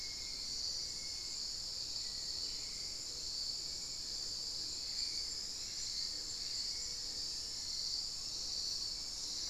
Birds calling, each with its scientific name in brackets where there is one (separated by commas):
unidentified bird, Hauxwell's Thrush (Turdus hauxwelli), Little Tinamou (Crypturellus soui), Gray Antwren (Myrmotherula menetriesii)